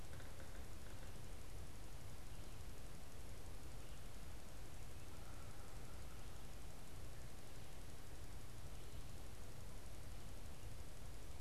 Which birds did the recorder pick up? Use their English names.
Yellow-bellied Sapsucker